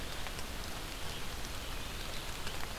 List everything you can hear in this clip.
Red-eyed Vireo